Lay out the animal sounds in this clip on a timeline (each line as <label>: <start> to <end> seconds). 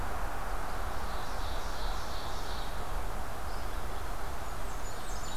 Red-eyed Vireo (Vireo olivaceus): 0.0 to 5.4 seconds
Ovenbird (Seiurus aurocapilla): 0.8 to 2.8 seconds
Blackburnian Warbler (Setophaga fusca): 4.3 to 5.4 seconds
Ovenbird (Seiurus aurocapilla): 4.8 to 5.4 seconds